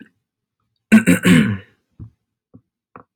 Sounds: Throat clearing